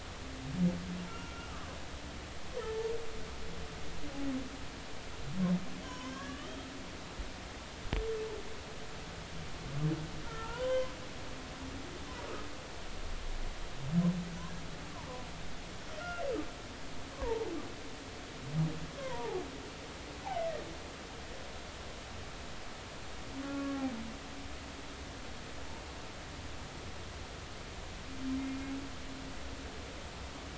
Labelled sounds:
1.1	1.8	humpback whale, 0.99 to 1.4 kHz
2.6	2.9	humpback whale, 0.83 to 0.96 kHz
5.8	6.6	humpback whale, 0.96 to 3.3 kHz
10.2	10.9	humpback whale, 0.83 to 3.2 kHz
16.0	16.2	humpback whale, 1.3 to 1.5 kHz
17.1	17.5	humpback whale, 0.80 to 1.2 kHz
19.0	19.4	humpback whale, 0.80 to 1.1 kHz
20.4	20.6	humpback whale, 1.8 to 2.1 kHz
23.4	23.8	humpback whale, 1.1 to 1.4 kHz

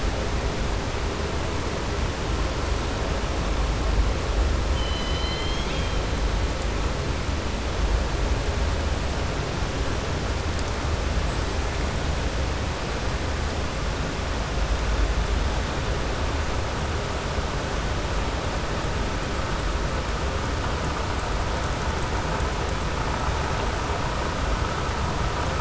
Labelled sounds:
4.7	6.0	killer whale, southern resident, 2.0 to 5.1 kHz

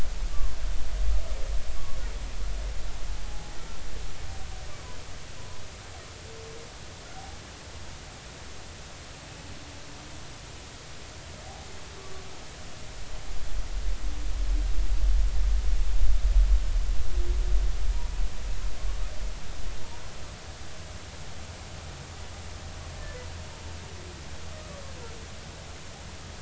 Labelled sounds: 3.3	3.5	humpback whale, 0.80 to 0.86 kHz
5.4	5.6	humpback whale, 0.93 to 1.1 kHz
7.1	7.4	humpback whale, 0.80 to 0.86 kHz

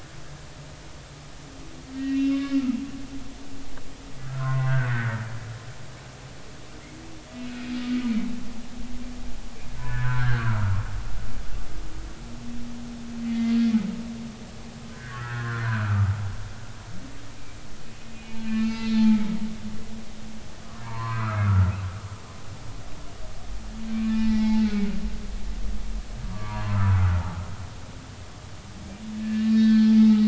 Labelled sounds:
2.0	2.6	humpback whale, 1.1 to 3.7 kHz
4.2	4.7	humpback whale, 0.90 to 2.0 kHz
7.5	7.8	humpback whale, 2.4 to 2.6 kHz
9.8	10.6	humpback whale, 0.93 to 1.9 kHz
13.2	13.5	humpback whale, 2.0 to 2.1 kHz
15.9	17.0	humpback whale, 1.1 to 2.0 kHz
18.1	19.0	humpback whale, 0.80 to 4.8 kHz
20.8	21.7	humpback whale, 0.86 to 4.4 kHz
24.0	24.6	humpback whale, 0.80 to 4.0 kHz
24.9	27.2	humpback whale, 0.90 to 2.5 kHz
29.2	29.9	humpback whale, 1.5 to 4.4 kHz

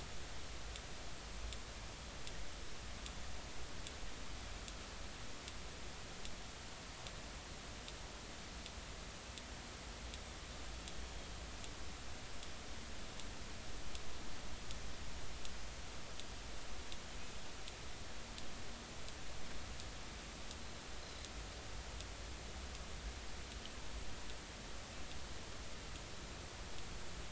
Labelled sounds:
21.0	21.3	Pacific white-sided dolphin, 3.9 to 4.2 kHz

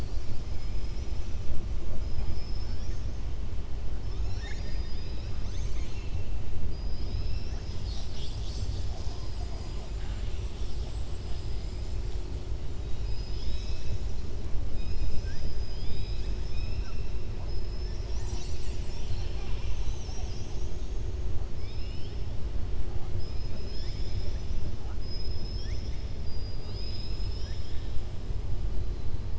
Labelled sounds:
4.0	5.3	killer whale, southern resident, 0.82 to 6.8 kHz

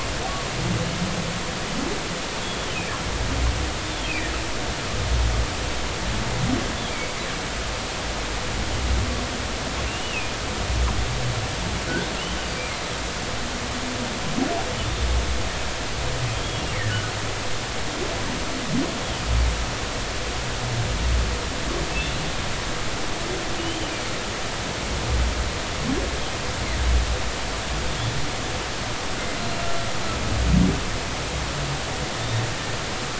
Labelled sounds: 2.4	2.7	humpback whale, 3.3 to 3.5 kHz
4.0	4.3	humpback whale, 2.2 to 2.7 kHz
6.9	7.1	humpback whale, 2.2 to 2.4 kHz
9.9	10.4	humpback whale, 2.4 to 3.0 kHz
24.6	24.9	humpback whale, 2.8 to 3.2 kHz

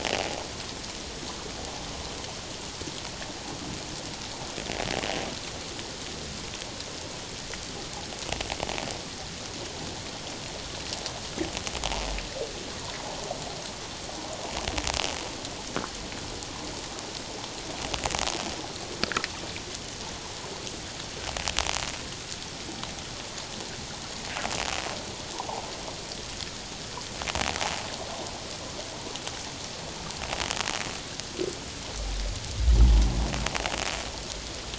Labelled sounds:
25.3	25.6	water noise, 0.78 to 1.1 kHz

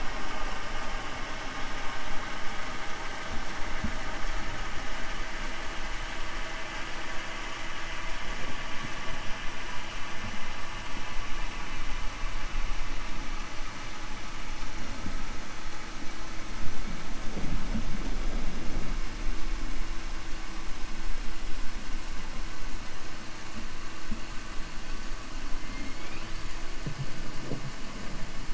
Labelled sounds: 25.6	26.4	killer whale, 1.3 to 3.8 kHz

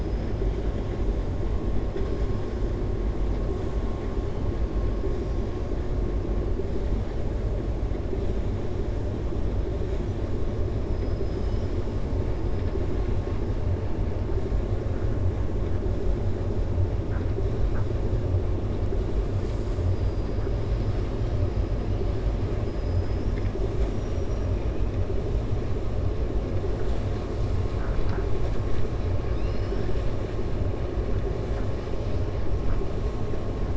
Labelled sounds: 22.7	23.4	killer whale, 5.0 to 5.6 kHz
23.7	24.4	killer whale, 5.6 to 7.8 kHz

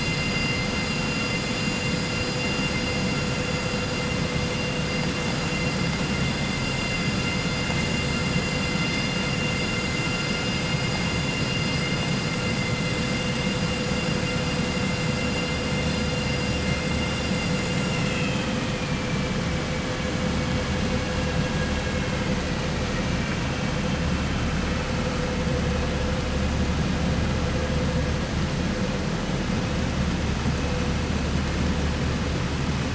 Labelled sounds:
17.8	18.6	vessel noise, 1.9 to 4.0 kHz

